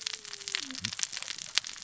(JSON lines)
{"label": "biophony, cascading saw", "recorder": "SoundTrap 600 or HydroMoth"}